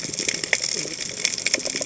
{"label": "biophony, cascading saw", "recorder": "HydroMoth"}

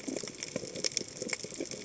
{"label": "biophony, chatter", "recorder": "HydroMoth"}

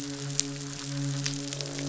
{"label": "biophony, croak", "recorder": "SoundTrap 500"}
{"label": "biophony, midshipman", "recorder": "SoundTrap 500"}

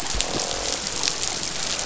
{"label": "biophony, croak", "recorder": "SoundTrap 500"}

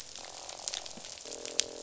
{"label": "biophony, croak", "recorder": "SoundTrap 500"}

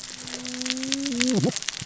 {"label": "biophony, cascading saw", "recorder": "SoundTrap 600 or HydroMoth"}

